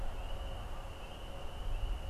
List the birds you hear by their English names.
Canada Goose